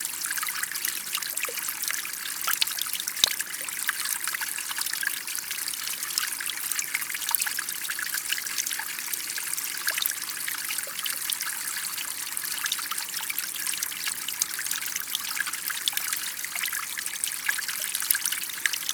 Where is the liquid landing?
water